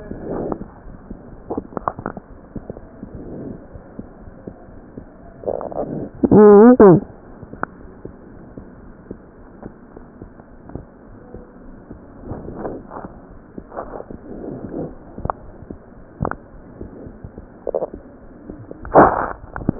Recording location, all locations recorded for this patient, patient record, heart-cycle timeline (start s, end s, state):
aortic valve (AV)
aortic valve (AV)+pulmonary valve (PV)+tricuspid valve (TV)+mitral valve (MV)
#Age: Child
#Sex: Male
#Height: 87.0 cm
#Weight: 12.5 kg
#Pregnancy status: False
#Murmur: Unknown
#Murmur locations: nan
#Most audible location: nan
#Systolic murmur timing: nan
#Systolic murmur shape: nan
#Systolic murmur grading: nan
#Systolic murmur pitch: nan
#Systolic murmur quality: nan
#Diastolic murmur timing: nan
#Diastolic murmur shape: nan
#Diastolic murmur grading: nan
#Diastolic murmur pitch: nan
#Diastolic murmur quality: nan
#Outcome: Abnormal
#Campaign: 2015 screening campaign
0.00	3.56	unannotated
3.56	3.72	diastole
3.72	3.84	S1
3.84	3.94	systole
3.94	4.08	S2
4.08	4.24	diastole
4.24	4.38	S1
4.38	4.45	systole
4.45	4.56	S2
4.56	4.73	diastole
4.73	4.88	S1
4.88	4.96	systole
4.96	5.08	S2
5.08	5.23	diastole
5.23	5.40	S1
5.40	7.29	unannotated
7.29	7.40	S1
7.40	7.49	systole
7.49	7.60	S2
7.60	7.79	diastole
7.79	7.94	S1
7.94	8.01	systole
8.01	8.16	S2
8.16	8.34	diastole
8.34	8.48	S1
8.48	8.54	systole
8.54	8.64	S2
8.64	8.81	diastole
8.81	8.94	S1
8.94	9.06	systole
9.06	9.18	S2
9.18	9.38	diastole
9.38	9.52	S1
9.52	9.62	systole
9.62	9.74	S2
9.74	9.94	diastole
9.94	10.08	S1
10.08	10.18	systole
10.18	10.30	S2
10.30	10.46	diastole
10.46	10.62	S1
10.62	10.72	systole
10.72	10.86	S2
10.86	11.06	diastole
11.06	11.18	S1
11.18	11.30	systole
11.30	11.42	S2
11.42	11.61	diastole
11.61	11.76	S1
11.76	11.88	systole
11.88	12.02	S2
12.02	12.19	diastole
12.19	19.79	unannotated